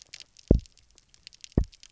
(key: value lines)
label: biophony, double pulse
recorder: SoundTrap 300